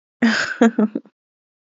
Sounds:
Laughter